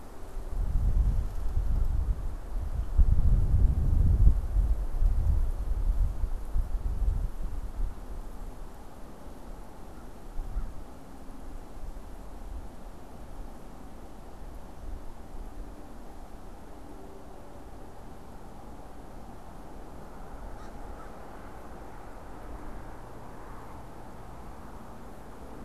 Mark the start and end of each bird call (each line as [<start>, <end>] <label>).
[9.63, 10.83] American Crow (Corvus brachyrhynchos)
[20.33, 21.23] American Crow (Corvus brachyrhynchos)